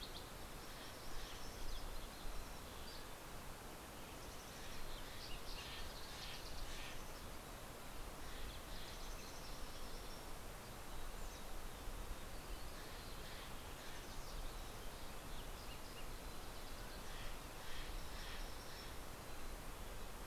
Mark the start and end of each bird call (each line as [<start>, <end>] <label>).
[0.00, 1.13] Green-tailed Towhee (Pipilo chlorurus)
[0.00, 3.13] Mountain Chickadee (Poecile gambeli)
[2.23, 3.83] Pacific-slope Flycatcher (Empidonax difficilis)
[3.53, 10.13] Mountain Chickadee (Poecile gambeli)
[5.33, 9.33] Steller's Jay (Cyanocitta stelleri)
[11.73, 14.63] Steller's Jay (Cyanocitta stelleri)
[13.73, 17.33] Yellow-rumped Warbler (Setophaga coronata)
[16.63, 20.13] Steller's Jay (Cyanocitta stelleri)